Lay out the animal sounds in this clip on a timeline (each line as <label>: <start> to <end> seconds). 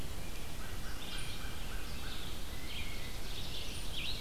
Red-eyed Vireo (Vireo olivaceus): 0.0 to 4.2 seconds
American Crow (Corvus brachyrhynchos): 0.4 to 2.2 seconds
Blue Jay (Cyanocitta cristata): 2.5 to 3.3 seconds
Chipping Sparrow (Spizella passerina): 2.6 to 4.2 seconds